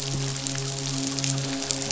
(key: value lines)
label: biophony, midshipman
recorder: SoundTrap 500